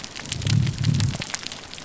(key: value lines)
label: biophony
recorder: SoundTrap 300